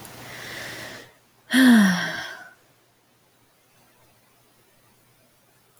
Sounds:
Sigh